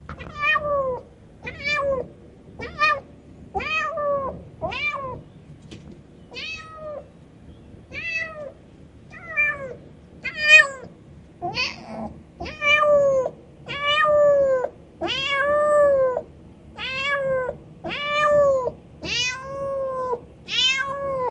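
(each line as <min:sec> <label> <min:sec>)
0:00.1 A kitten is meowing. 0:01.2
0:00.1 A cat meowing. 0:03.2
0:03.6 A kitten is meowing. 0:05.3
0:06.3 A kitten is meowing. 0:07.0
0:07.9 A kitten is meowing. 0:21.2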